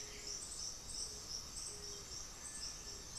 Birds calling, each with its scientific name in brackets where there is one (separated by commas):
Cinereous Tinamou (Crypturellus cinereus), Scaled Pigeon (Patagioenas speciosa), White-winged Becard (Pachyramphus polychopterus)